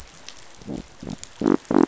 {"label": "biophony", "recorder": "SoundTrap 500"}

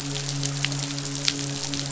{"label": "biophony, midshipman", "recorder": "SoundTrap 500"}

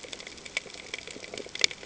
{"label": "ambient", "recorder": "HydroMoth"}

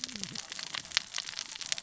{"label": "biophony, cascading saw", "recorder": "SoundTrap 600 or HydroMoth"}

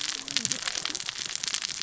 {"label": "biophony, cascading saw", "recorder": "SoundTrap 600 or HydroMoth"}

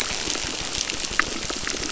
{"label": "biophony, crackle", "recorder": "SoundTrap 600"}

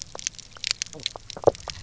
{"label": "biophony, knock croak", "recorder": "SoundTrap 300"}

